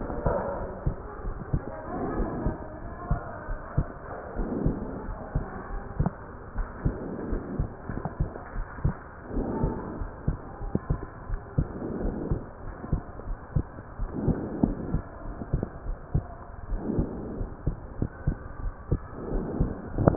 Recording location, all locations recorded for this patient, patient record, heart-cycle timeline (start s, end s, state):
pulmonary valve (PV)
aortic valve (AV)+pulmonary valve (PV)+tricuspid valve (TV)+mitral valve (MV)
#Age: Child
#Sex: Female
#Height: 139.0 cm
#Weight: 34.7 kg
#Pregnancy status: False
#Murmur: Absent
#Murmur locations: nan
#Most audible location: nan
#Systolic murmur timing: nan
#Systolic murmur shape: nan
#Systolic murmur grading: nan
#Systolic murmur pitch: nan
#Systolic murmur quality: nan
#Diastolic murmur timing: nan
#Diastolic murmur shape: nan
#Diastolic murmur grading: nan
#Diastolic murmur pitch: nan
#Diastolic murmur quality: nan
#Outcome: Normal
#Campaign: 2015 screening campaign
0.00	0.38	unannotated
0.38	0.58	diastole
0.58	0.70	S1
0.70	0.82	systole
0.82	0.94	S2
0.94	1.24	diastole
1.24	1.34	S1
1.34	1.50	systole
1.50	1.62	S2
1.62	2.15	diastole
2.15	2.29	S1
2.29	2.43	systole
2.43	2.54	S2
2.54	2.78	diastole
2.78	2.92	S1
2.92	3.08	systole
3.08	3.22	S2
3.22	3.47	diastole
3.47	3.59	S1
3.59	3.75	systole
3.75	3.86	S2
3.86	4.34	diastole
4.34	4.50	S1
4.50	4.64	systole
4.64	4.78	S2
4.78	5.06	diastole
5.06	5.18	S1
5.18	5.34	systole
5.34	5.48	S2
5.48	5.69	diastole
5.69	5.84	S1
5.84	5.95	systole
5.95	6.16	S2
6.16	6.52	diastole
6.52	6.68	S1
6.68	6.81	systole
6.81	6.98	S2
6.98	7.26	diastole
7.26	7.40	S1
7.40	7.56	systole
7.56	7.68	S2
7.68	7.90	diastole
7.90	8.02	S1
8.02	8.16	systole
8.16	8.30	S2
8.30	8.52	diastole
8.52	8.66	S1
8.66	8.82	systole
8.82	8.96	S2
8.96	9.32	diastole
9.32	9.46	S1
9.46	9.60	systole
9.60	9.74	S2
9.74	9.98	diastole
9.98	10.10	S1
10.10	10.24	systole
10.24	10.38	S2
10.38	10.59	diastole
10.59	10.72	S1
10.72	10.86	systole
10.86	11.00	S2
11.00	11.26	diastole
11.26	11.40	S1
11.40	11.54	systole
11.54	11.68	S2
11.68	11.96	diastole
11.96	12.14	S1
12.14	12.26	systole
12.26	12.40	S2
12.40	12.63	diastole
12.63	12.74	S1
12.74	12.90	systole
12.90	13.02	S2
13.02	13.24	diastole
13.24	13.38	S1
13.38	13.52	systole
13.52	13.66	S2
13.66	13.97	diastole
13.97	14.10	S1
14.10	14.24	systole
14.24	14.40	S2
14.40	14.62	diastole
14.62	14.76	S1
14.76	14.92	systole
14.92	15.04	S2
15.04	15.23	diastole
15.23	15.36	S1
15.36	15.50	systole
15.50	15.64	S2
15.64	15.84	diastole
15.84	15.98	S1
15.98	16.11	systole
16.11	16.28	S2
16.28	16.64	diastole
16.64	16.80	S1
16.80	16.94	systole
16.94	17.08	S2
17.08	17.36	diastole
17.36	17.50	S1
17.50	17.64	systole
17.64	17.78	S2
17.78	17.97	diastole
17.97	18.10	S1
18.10	18.24	systole
18.24	18.36	S2
18.36	18.60	diastole
18.60	18.74	S1
18.74	18.90	systole
18.90	19.02	S2
19.02	19.30	diastole
19.30	19.48	S1
19.48	19.58	systole
19.58	19.74	S2
19.74	19.95	diastole
19.95	20.16	unannotated